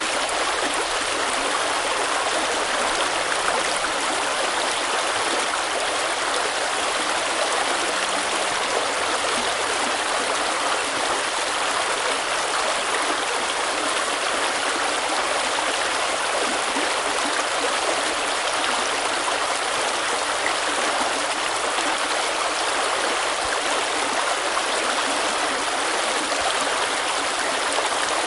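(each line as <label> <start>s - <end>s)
A brook is running. 0.1s - 28.3s
A stream gurgles gently. 0.1s - 28.3s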